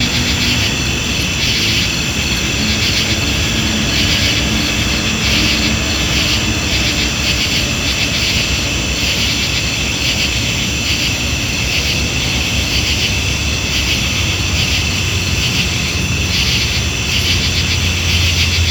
are people talking?
no